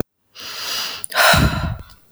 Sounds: Sigh